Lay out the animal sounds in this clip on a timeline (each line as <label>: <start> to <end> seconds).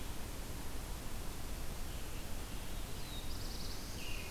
Black-throated Blue Warbler (Setophaga caerulescens): 2.5 to 4.2 seconds